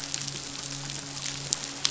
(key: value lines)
label: biophony, midshipman
recorder: SoundTrap 500